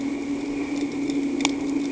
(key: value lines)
label: anthrophony, boat engine
recorder: HydroMoth